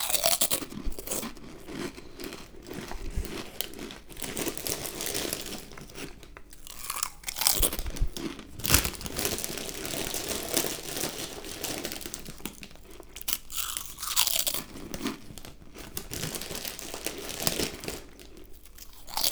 What is the person doing?
eating